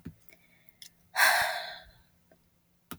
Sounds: Sigh